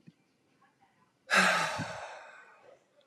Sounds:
Sigh